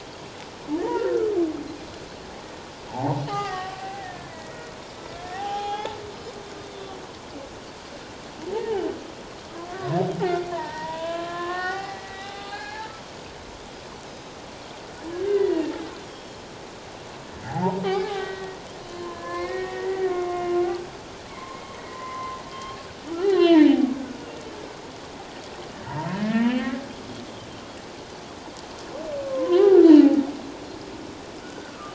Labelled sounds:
0.8	1.3	humpback whale, 1.3 to 2.0 kHz
2.9	4.7	humpback whale, 0.78 to 2.1 kHz
5.0	6.0	humpback whale, 0.78 to 3.5 kHz
6.6	7.0	Pacific white-sided dolphin, 3.4 to 3.7 kHz
8.5	8.8	humpback whale, 0.78 to 0.97 kHz
9.7	13.0	humpback whale, 0.78 to 4.4 kHz
14.1	14.3	Pacific white-sided dolphin, 3.7 to 6.5 kHz
15.0	15.7	humpback whale, 1.5 to 2.1 kHz
16.0	16.4	Pacific white-sided dolphin, 3.1 to 5.8 kHz
17.5	20.6	humpback whale, 0.78 to 2.4 kHz
18.8	19.1	Pacific white-sided dolphin, 4.1 to 4.3 kHz
21.3	22.8	humpback whale, 0.88 to 3.3 kHz
23.2	23.9	humpback whale, 0.78 to 4.2 kHz
26.1	26.7	humpback whale, 1.6 to 3.2 kHz
29.2	30.2	humpback whale, 0.78 to 1.2 kHz
31.4	31.9	humpback whale, 1.1 to 1.6 kHz

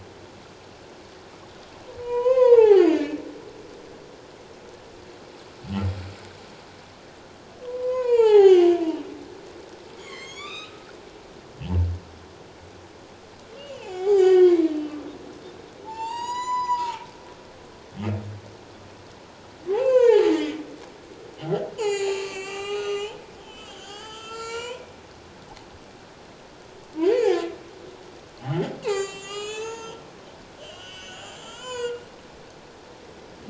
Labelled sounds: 2.0	3.2	humpback whale, 0.78 to 4.9 kHz
7.6	8.7	humpback whale, 0.78 to 5.2 kHz
9.9	10.9	humpback whale, 1.0 to 7.2 kHz
13.6	15.0	humpback whale, 0.78 to 5.0 kHz
15.8	17.0	humpback whale, 0.81 to 8.0 kHz
19.7	20.6	humpback whale, 0.78 to 7.4 kHz
21.8	24.8	humpback whale, 0.78 to 7.5 kHz
27.1	27.5	humpback whale, 1.7 to 2.6 kHz
28.4	30.0	humpback whale, 0.78 to 7.8 kHz
30.6	32.0	humpback whale, 0.91 to 7.9 kHz

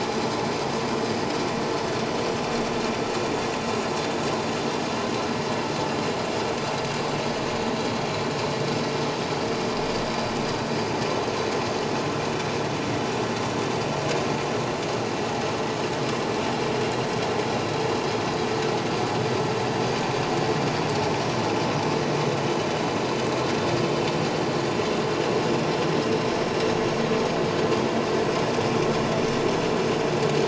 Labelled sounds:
8.1	8.3	vessel noise, 5.3 to 5.4 kHz

